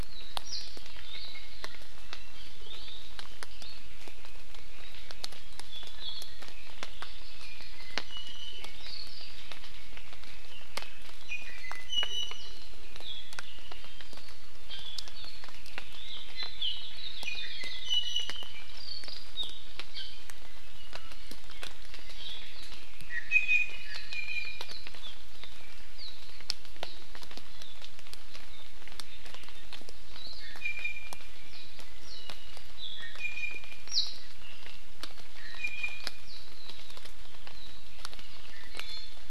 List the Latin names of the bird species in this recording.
Zosterops japonicus, Drepanis coccinea, Chlorodrepanis virens, Loxops coccineus